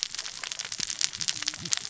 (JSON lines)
{"label": "biophony, cascading saw", "recorder": "SoundTrap 600 or HydroMoth"}